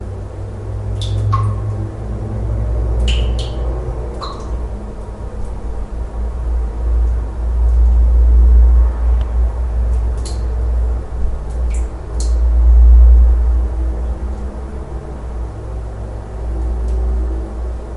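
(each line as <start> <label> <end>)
0.0 Multiple car engines roar deeply in the background. 18.0
0.9 Individual droplets of water create a pattern. 1.9
3.0 Individual droplets of water create a pattern. 4.6
10.2 Individual droplets of water create a pattern. 12.8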